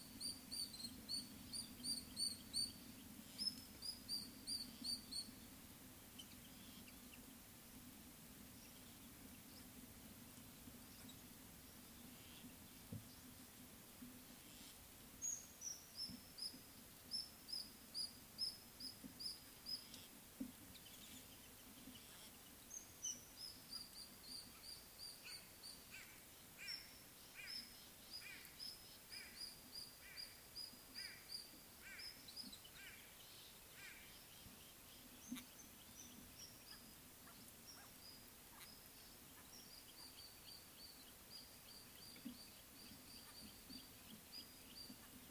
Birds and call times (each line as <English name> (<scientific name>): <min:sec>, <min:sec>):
Rufous Chatterer (Argya rubiginosa): 0:01.1, 0:04.1, 0:17.2, 0:24.3, 0:29.8, 0:36.4, 0:42.1
White-bellied Go-away-bird (Corythaixoides leucogaster): 0:26.7, 0:31.9